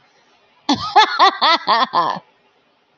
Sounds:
Laughter